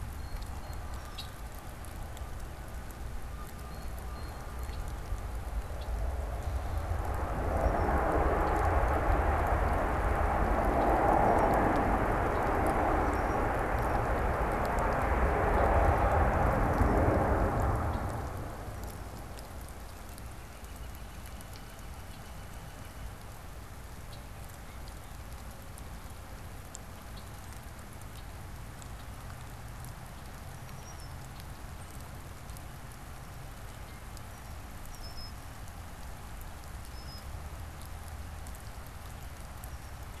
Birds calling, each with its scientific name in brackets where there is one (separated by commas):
Northern Flicker (Colaptes auratus), Canada Goose (Branta canadensis), Blue Jay (Cyanocitta cristata), Red-winged Blackbird (Agelaius phoeniceus)